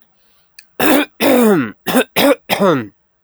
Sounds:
Cough